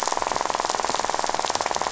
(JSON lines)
{"label": "biophony, rattle", "recorder": "SoundTrap 500"}